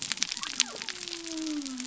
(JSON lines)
{"label": "biophony", "recorder": "SoundTrap 300"}